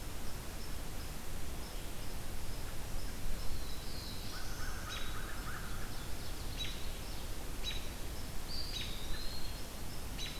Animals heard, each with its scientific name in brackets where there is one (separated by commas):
Ovenbird (Seiurus aurocapilla), Black-throated Blue Warbler (Setophaga caerulescens), American Crow (Corvus brachyrhynchos), Eastern Wood-Pewee (Contopus virens), American Robin (Turdus migratorius)